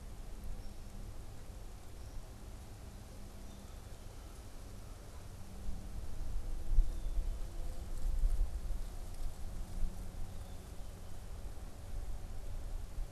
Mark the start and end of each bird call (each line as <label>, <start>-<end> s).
Black-capped Chickadee (Poecile atricapillus), 3.2-11.3 s
American Crow (Corvus brachyrhynchos), 3.4-5.3 s